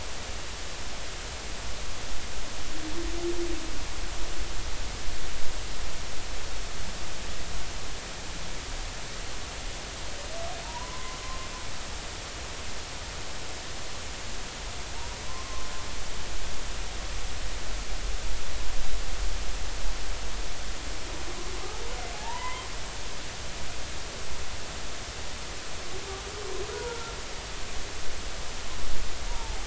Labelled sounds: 10.6	11.5	humpback whale, 0.86 to 1.1 kHz
15.3	15.7	humpback whale, 0.99 to 1.1 kHz
22.1	22.7	humpback whale, 0.80 to 3.2 kHz
26.7	27.2	humpback whale, 0.86 to 1.4 kHz
29.3	29.6	humpback whale, 0.80 to 0.99 kHz

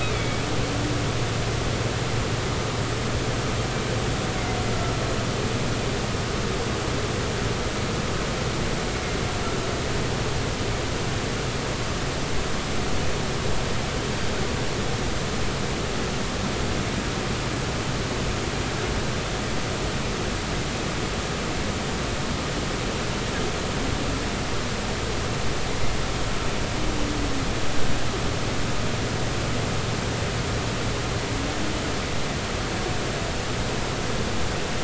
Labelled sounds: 0.0	0.4	humpback whale, 2.2 to 2.6 kHz

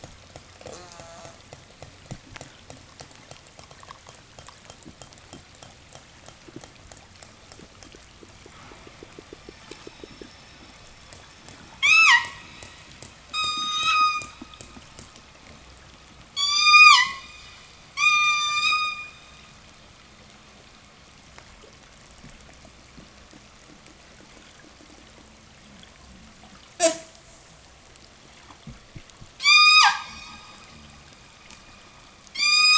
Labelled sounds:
0.4	1.5	killer whale, southern resident, call S04, 0.16 to 8.0 kHz
9.2	12.4	killer whale, southern resident, 0 to 8.0 kHz
13.2	14.4	killer whale, southern resident, 0 to 8.0 kHz
16.2	17.4	killer whale, southern resident, 0 to 8.0 kHz
17.9	19.5	killer whale, southern resident, 0 to 8.0 kHz
29.2	30.7	killer whale, southern resident, 0 to 8.0 kHz
32.1	32.7	killer whale, southern resident, 0.80 to 8.0 kHz

